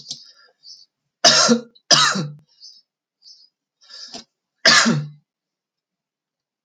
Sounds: Cough